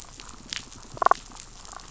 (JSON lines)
{"label": "biophony", "recorder": "SoundTrap 500"}
{"label": "biophony, damselfish", "recorder": "SoundTrap 500"}